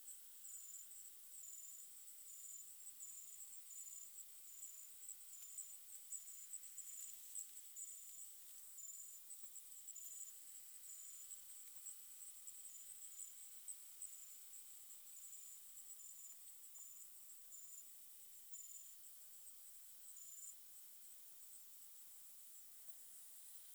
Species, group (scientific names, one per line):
Helicocercus triguttatus
Orthoptera